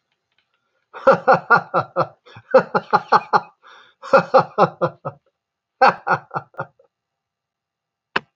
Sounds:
Laughter